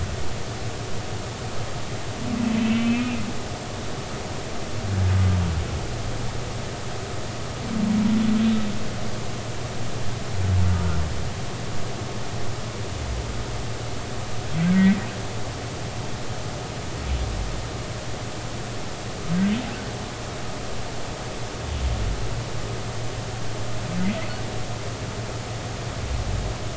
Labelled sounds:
2.6	3.2	humpback whale, 2.2 to 3.1 kHz

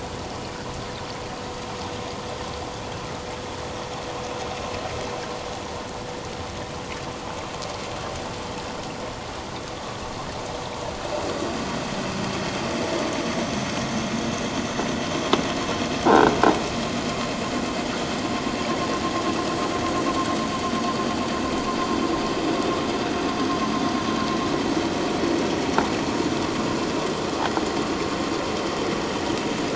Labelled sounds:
16.1	16.3	croaking sound likely from a nearby submerged object, 1.3 to 1.7 kHz

